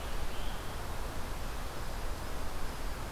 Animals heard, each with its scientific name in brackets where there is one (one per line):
Scarlet Tanager (Piranga olivacea)